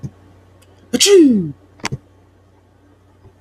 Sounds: Sneeze